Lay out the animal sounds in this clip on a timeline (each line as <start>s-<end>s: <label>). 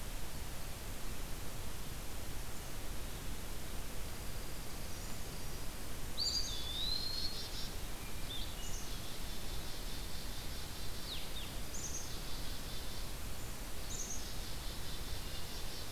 3.9s-5.7s: Dark-eyed Junco (Junco hyemalis)
4.5s-5.8s: Brown Creeper (Certhia americana)
6.0s-7.5s: Eastern Wood-Pewee (Contopus virens)
6.1s-7.9s: Black-capped Chickadee (Poecile atricapillus)
8.0s-8.8s: Hermit Thrush (Catharus guttatus)
8.1s-15.9s: Blue-headed Vireo (Vireo solitarius)
8.3s-13.2s: Black-capped Chickadee (Poecile atricapillus)
13.6s-15.9s: Black-capped Chickadee (Poecile atricapillus)
14.6s-15.8s: Hermit Thrush (Catharus guttatus)